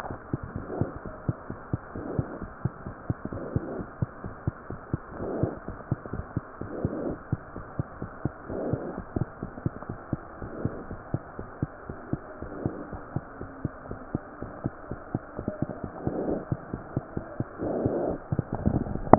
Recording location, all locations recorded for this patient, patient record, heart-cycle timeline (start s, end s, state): mitral valve (MV)
aortic valve (AV)+mitral valve (MV)
#Age: Infant
#Sex: Male
#Height: 64.0 cm
#Weight: 8.9 kg
#Pregnancy status: False
#Murmur: Absent
#Murmur locations: nan
#Most audible location: nan
#Systolic murmur timing: nan
#Systolic murmur shape: nan
#Systolic murmur grading: nan
#Systolic murmur pitch: nan
#Systolic murmur quality: nan
#Diastolic murmur timing: nan
#Diastolic murmur shape: nan
#Diastolic murmur grading: nan
#Diastolic murmur pitch: nan
#Diastolic murmur quality: nan
#Outcome: Normal
#Campaign: 2015 screening campaign
0.00	2.36	unannotated
2.36	2.51	S1
2.51	2.61	systole
2.61	2.70	S2
2.70	2.83	diastole
2.83	2.93	S1
2.93	3.06	systole
3.06	3.17	S2
3.17	3.31	diastole
3.31	3.39	S1
3.39	3.51	systole
3.51	3.62	S2
3.62	3.76	diastole
3.76	3.86	S1
3.86	3.99	systole
3.99	4.07	S2
4.07	4.23	diastole
4.23	4.31	S1
4.31	4.44	systole
4.44	4.52	S2
4.52	4.68	diastole
4.68	4.79	S1
4.79	4.91	systole
4.91	4.98	S2
4.98	5.20	diastole
5.20	5.27	S1
5.27	5.40	systole
5.40	5.47	S2
5.47	5.66	diastole
5.66	5.77	S1
5.77	5.88	systole
5.88	5.95	S2
5.95	19.18	unannotated